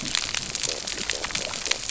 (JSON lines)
{"label": "biophony, stridulation", "recorder": "SoundTrap 300"}